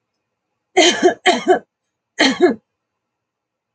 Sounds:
Cough